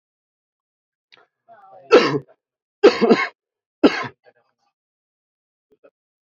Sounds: Cough